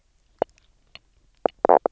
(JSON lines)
{"label": "biophony, knock croak", "recorder": "SoundTrap 300"}